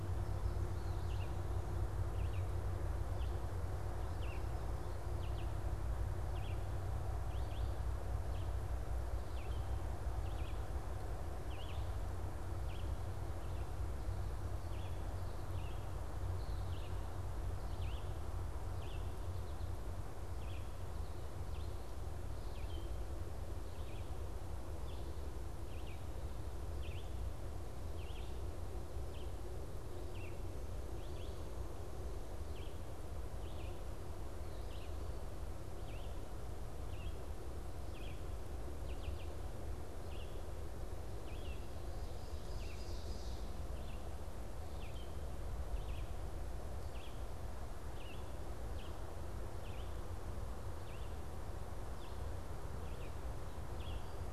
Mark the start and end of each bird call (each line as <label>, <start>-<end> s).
Red-eyed Vireo (Vireo olivaceus), 0.0-54.3 s
Ovenbird (Seiurus aurocapilla), 41.9-43.6 s